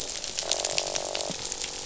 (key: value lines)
label: biophony, croak
recorder: SoundTrap 500